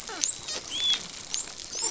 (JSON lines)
{"label": "biophony, dolphin", "recorder": "SoundTrap 500"}